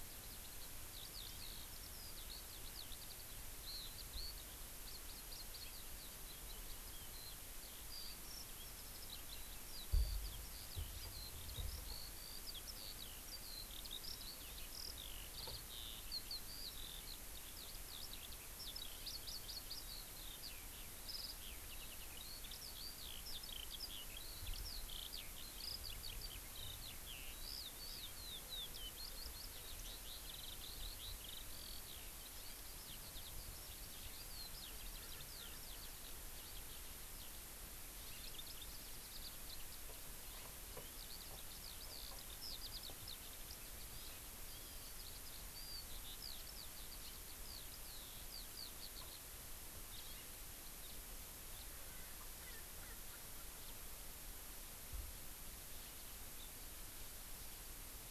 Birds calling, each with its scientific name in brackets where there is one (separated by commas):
Eurasian Skylark (Alauda arvensis), Erckel's Francolin (Pternistis erckelii), Hawaii Amakihi (Chlorodrepanis virens), House Finch (Haemorhous mexicanus)